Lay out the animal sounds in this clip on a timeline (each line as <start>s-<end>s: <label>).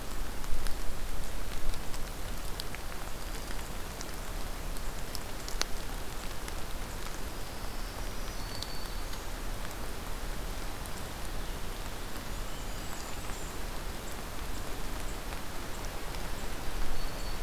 3.1s-3.7s: Black-throated Green Warbler (Setophaga virens)
7.2s-9.3s: Black-throated Green Warbler (Setophaga virens)
10.7s-13.5s: Purple Finch (Haemorhous purpureus)
11.8s-13.6s: Blackburnian Warbler (Setophaga fusca)
12.5s-13.2s: Black-throated Green Warbler (Setophaga virens)
16.9s-17.4s: Black-throated Green Warbler (Setophaga virens)